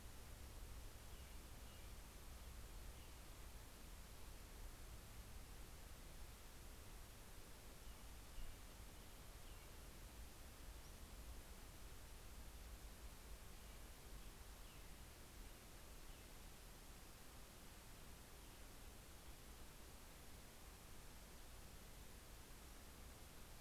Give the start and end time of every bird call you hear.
0.2s-3.3s: American Robin (Turdus migratorius)
7.3s-10.4s: American Robin (Turdus migratorius)

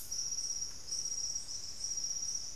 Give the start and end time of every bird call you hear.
0.0s-0.7s: White-throated Toucan (Ramphastos tucanus)
0.0s-2.5s: Golden-crowned Spadebill (Platyrinchus coronatus)
1.2s-1.9s: Piratic Flycatcher (Legatus leucophaius)

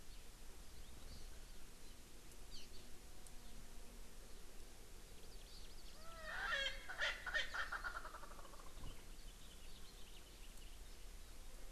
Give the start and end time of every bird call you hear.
2.4s-2.8s: Hawaii Amakihi (Chlorodrepanis virens)
5.1s-6.3s: Hawaii Amakihi (Chlorodrepanis virens)
5.9s-8.7s: Erckel's Francolin (Pternistis erckelii)
8.7s-10.7s: House Finch (Haemorhous mexicanus)

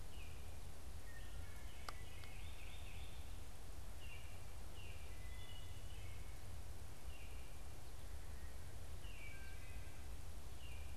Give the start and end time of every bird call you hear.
0.0s-10.9s: Baltimore Oriole (Icterus galbula)
5.2s-6.0s: Wood Thrush (Hylocichla mustelina)
8.7s-10.0s: Wood Thrush (Hylocichla mustelina)

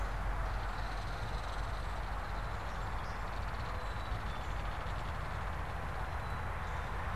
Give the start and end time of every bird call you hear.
0.0s-4.3s: Canada Goose (Branta canadensis)
0.0s-6.5s: Belted Kingfisher (Megaceryle alcyon)
6.0s-6.9s: Black-capped Chickadee (Poecile atricapillus)

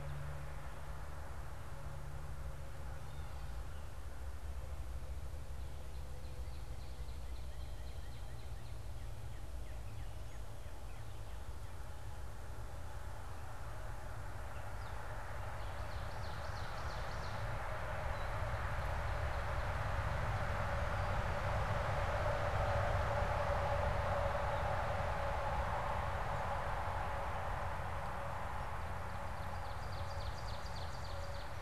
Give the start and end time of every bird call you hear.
5.6s-11.8s: Northern Cardinal (Cardinalis cardinalis)
15.5s-17.7s: Ovenbird (Seiurus aurocapilla)
18.0s-20.3s: Ovenbird (Seiurus aurocapilla)
29.0s-31.6s: Ovenbird (Seiurus aurocapilla)

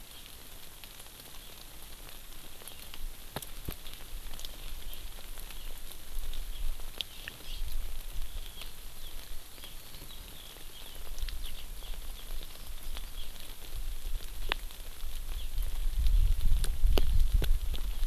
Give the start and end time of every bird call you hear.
7.4s-7.7s: Hawaii Amakihi (Chlorodrepanis virens)
8.5s-13.3s: Eurasian Skylark (Alauda arvensis)

